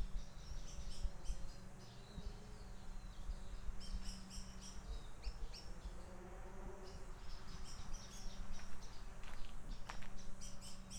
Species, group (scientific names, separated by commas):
Amphipsalta zelandica, Cicadidae